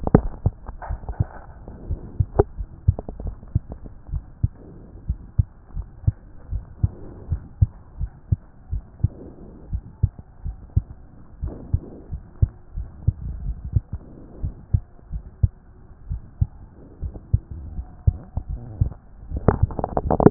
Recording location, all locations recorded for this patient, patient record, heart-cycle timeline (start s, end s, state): aortic valve (AV)
aortic valve (AV)+pulmonary valve (PV)+tricuspid valve (TV)+mitral valve (MV)
#Age: Child
#Sex: Female
#Height: 124.0 cm
#Weight: 22.9 kg
#Pregnancy status: False
#Murmur: Absent
#Murmur locations: nan
#Most audible location: nan
#Systolic murmur timing: nan
#Systolic murmur shape: nan
#Systolic murmur grading: nan
#Systolic murmur pitch: nan
#Systolic murmur quality: nan
#Diastolic murmur timing: nan
#Diastolic murmur shape: nan
#Diastolic murmur grading: nan
#Diastolic murmur pitch: nan
#Diastolic murmur quality: nan
#Outcome: Normal
#Campaign: 2014 screening campaign
0.00	4.10	unannotated
4.10	4.22	S1
4.22	4.42	systole
4.42	4.52	S2
4.52	5.08	diastole
5.08	5.18	S1
5.18	5.38	systole
5.38	5.46	S2
5.46	5.76	diastole
5.76	5.86	S1
5.86	6.06	systole
6.06	6.14	S2
6.14	6.52	diastole
6.52	6.64	S1
6.64	6.82	systole
6.82	6.92	S2
6.92	7.30	diastole
7.30	7.42	S1
7.42	7.60	systole
7.60	7.70	S2
7.70	8.00	diastole
8.00	8.10	S1
8.10	8.30	systole
8.30	8.38	S2
8.38	8.72	diastole
8.72	8.82	S1
8.82	9.02	systole
9.02	9.12	S2
9.12	9.72	diastole
9.72	9.82	S1
9.82	10.02	systole
10.02	10.12	S2
10.12	10.46	diastole
10.46	10.56	S1
10.56	10.74	systole
10.74	10.86	S2
10.86	11.42	diastole
11.42	11.54	S1
11.54	11.72	systole
11.72	11.82	S2
11.82	12.12	diastole
12.12	12.24	S1
12.24	12.40	systole
12.40	12.52	S2
12.52	12.76	diastole
12.76	12.88	S1
12.88	13.06	systole
13.06	13.12	S2
13.12	13.44	diastole
13.44	13.56	S1
13.56	13.74	systole
13.74	13.84	S2
13.84	14.42	diastole
14.42	14.54	S1
14.54	14.72	systole
14.72	14.82	S2
14.82	15.12	diastole
15.12	15.24	S1
15.24	15.42	systole
15.42	15.52	S2
15.52	16.10	diastole
16.10	16.22	S1
16.22	16.40	systole
16.40	16.50	S2
16.50	17.02	diastole
17.02	17.14	S1
17.14	17.32	systole
17.32	17.42	S2
17.42	17.76	diastole
17.76	17.86	S1
17.86	18.06	systole
18.06	18.16	S2
18.16	18.50	diastole
18.50	18.62	S1
18.62	18.80	systole
18.80	18.92	S2
18.92	19.30	diastole
19.30	20.30	unannotated